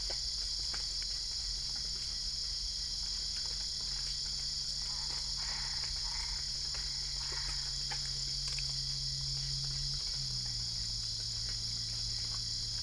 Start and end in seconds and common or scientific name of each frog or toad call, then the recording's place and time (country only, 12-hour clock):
5.2	8.0	Boana albopunctata
Brazil, 3:30am